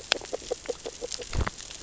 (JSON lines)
{"label": "biophony, grazing", "recorder": "SoundTrap 600 or HydroMoth"}